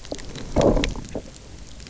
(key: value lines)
label: biophony
recorder: SoundTrap 300